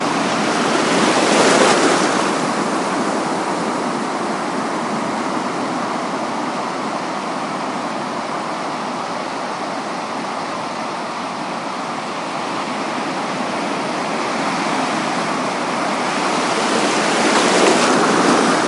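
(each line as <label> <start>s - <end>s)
Two waves crash after a long pause, with constant ocean water movement audible during the lulls. 0.2s - 3.7s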